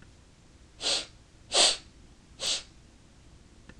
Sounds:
Sniff